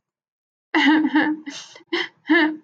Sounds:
Sigh